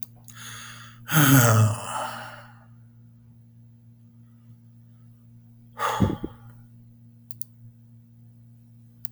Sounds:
Sigh